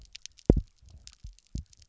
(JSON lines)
{"label": "biophony, double pulse", "recorder": "SoundTrap 300"}